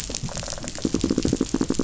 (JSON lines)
{"label": "biophony, rattle response", "recorder": "SoundTrap 500"}
{"label": "biophony, knock", "recorder": "SoundTrap 500"}